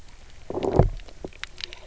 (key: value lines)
label: biophony, low growl
recorder: SoundTrap 300